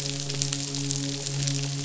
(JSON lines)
{"label": "biophony, midshipman", "recorder": "SoundTrap 500"}